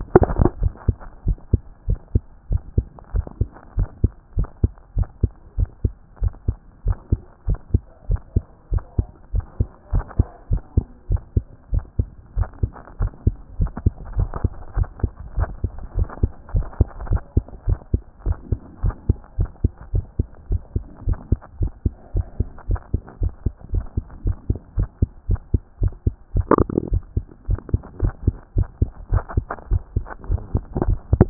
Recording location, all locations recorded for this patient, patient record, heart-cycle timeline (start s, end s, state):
mitral valve (MV)
aortic valve (AV)+pulmonary valve (PV)+tricuspid valve (TV)+mitral valve (MV)
#Age: Child
#Sex: Female
#Height: 131.0 cm
#Weight: 34.8 kg
#Pregnancy status: False
#Murmur: Absent
#Murmur locations: nan
#Most audible location: nan
#Systolic murmur timing: nan
#Systolic murmur shape: nan
#Systolic murmur grading: nan
#Systolic murmur pitch: nan
#Systolic murmur quality: nan
#Diastolic murmur timing: nan
#Diastolic murmur shape: nan
#Diastolic murmur grading: nan
#Diastolic murmur pitch: nan
#Diastolic murmur quality: nan
#Outcome: Normal
#Campaign: 2014 screening campaign
0.00	1.26	unannotated
1.26	1.38	S1
1.38	1.52	systole
1.52	1.60	S2
1.60	1.88	diastole
1.88	1.98	S1
1.98	2.14	systole
2.14	2.22	S2
2.22	2.50	diastole
2.50	2.62	S1
2.62	2.76	systole
2.76	2.86	S2
2.86	3.14	diastole
3.14	3.26	S1
3.26	3.40	systole
3.40	3.48	S2
3.48	3.76	diastole
3.76	3.88	S1
3.88	4.02	systole
4.02	4.12	S2
4.12	4.36	diastole
4.36	4.48	S1
4.48	4.62	systole
4.62	4.72	S2
4.72	4.96	diastole
4.96	5.08	S1
5.08	5.22	systole
5.22	5.30	S2
5.30	5.58	diastole
5.58	5.68	S1
5.68	5.82	systole
5.82	5.92	S2
5.92	6.22	diastole
6.22	6.32	S1
6.32	6.46	systole
6.46	6.56	S2
6.56	6.86	diastole
6.86	6.96	S1
6.96	7.10	systole
7.10	7.20	S2
7.20	7.48	diastole
7.48	7.58	S1
7.58	7.72	systole
7.72	7.82	S2
7.82	8.08	diastole
8.08	8.20	S1
8.20	8.34	systole
8.34	8.44	S2
8.44	8.72	diastole
8.72	8.82	S1
8.82	8.98	systole
8.98	9.06	S2
9.06	9.34	diastole
9.34	9.44	S1
9.44	9.58	systole
9.58	9.68	S2
9.68	9.92	diastole
9.92	10.04	S1
10.04	10.18	systole
10.18	10.26	S2
10.26	10.50	diastole
10.50	10.62	S1
10.62	10.76	systole
10.76	10.86	S2
10.86	11.10	diastole
11.10	11.20	S1
11.20	11.34	systole
11.34	11.44	S2
11.44	11.72	diastole
11.72	11.84	S1
11.84	11.98	systole
11.98	12.08	S2
12.08	12.36	diastole
12.36	12.48	S1
12.48	12.62	systole
12.62	12.70	S2
12.70	13.00	diastole
13.00	13.12	S1
13.12	13.26	systole
13.26	13.34	S2
13.34	13.60	diastole
13.60	13.70	S1
13.70	13.84	systole
13.84	13.94	S2
13.94	14.16	diastole
14.16	14.30	S1
14.30	14.42	systole
14.42	14.52	S2
14.52	14.76	diastole
14.76	14.88	S1
14.88	15.02	systole
15.02	15.12	S2
15.12	15.36	diastole
15.36	15.48	S1
15.48	15.62	systole
15.62	15.72	S2
15.72	15.96	diastole
15.96	16.08	S1
16.08	16.22	systole
16.22	16.30	S2
16.30	16.54	diastole
16.54	16.66	S1
16.66	16.78	systole
16.78	16.88	S2
16.88	17.08	diastole
17.08	17.22	S1
17.22	17.36	systole
17.36	17.44	S2
17.44	17.66	diastole
17.66	17.78	S1
17.78	17.92	systole
17.92	18.02	S2
18.02	18.26	diastole
18.26	18.38	S1
18.38	18.50	systole
18.50	18.60	S2
18.60	18.82	diastole
18.82	18.94	S1
18.94	19.08	systole
19.08	19.18	S2
19.18	19.38	diastole
19.38	19.50	S1
19.50	19.62	systole
19.62	19.72	S2
19.72	19.92	diastole
19.92	20.04	S1
20.04	20.18	systole
20.18	20.26	S2
20.26	20.50	diastole
20.50	20.62	S1
20.62	20.74	systole
20.74	20.84	S2
20.84	21.06	diastole
21.06	21.18	S1
21.18	21.30	systole
21.30	21.40	S2
21.40	21.60	diastole
21.60	21.72	S1
21.72	21.84	systole
21.84	21.94	S2
21.94	22.14	diastole
22.14	22.26	S1
22.26	22.38	systole
22.38	22.48	S2
22.48	22.68	diastole
22.68	22.80	S1
22.80	22.92	systole
22.92	23.02	S2
23.02	23.20	diastole
23.20	23.32	S1
23.32	23.44	systole
23.44	23.54	S2
23.54	23.72	diastole
23.72	23.84	S1
23.84	23.96	systole
23.96	24.04	S2
24.04	24.24	diastole
24.24	24.36	S1
24.36	24.48	systole
24.48	24.58	S2
24.58	24.76	diastole
24.76	24.88	S1
24.88	25.00	systole
25.00	25.10	S2
25.10	25.28	diastole
25.28	25.40	S1
25.40	25.52	systole
25.52	25.62	S2
25.62	25.80	diastole
25.80	25.92	S1
25.92	26.06	systole
26.06	26.14	S2
26.14	26.34	diastole
26.34	26.46	S1
26.46	26.58	systole
26.58	26.68	S2
26.68	26.90	diastole
26.90	27.02	S1
27.02	27.16	systole
27.16	27.24	S2
27.24	27.48	diastole
27.48	27.60	S1
27.60	27.72	systole
27.72	27.82	S2
27.82	28.02	diastole
28.02	28.14	S1
28.14	28.26	systole
28.26	28.36	S2
28.36	28.56	diastole
28.56	28.68	S1
28.68	28.80	systole
28.80	28.90	S2
28.90	29.12	diastole
29.12	29.22	S1
29.22	29.36	systole
29.36	29.46	S2
29.46	29.70	diastole
29.70	29.82	S1
29.82	29.94	systole
29.94	30.06	S2
30.06	30.30	diastole
30.30	30.40	S1
30.40	30.54	systole
30.54	30.62	S2
30.62	30.86	diastole
30.86	31.30	unannotated